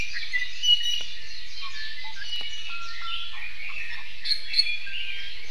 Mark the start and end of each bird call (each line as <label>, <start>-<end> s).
Iiwi (Drepanis coccinea), 0.0-1.1 s
Iiwi (Drepanis coccinea), 1.5-3.4 s
Red-billed Leiothrix (Leiothrix lutea), 3.3-5.4 s
Iiwi (Drepanis coccinea), 4.2-4.8 s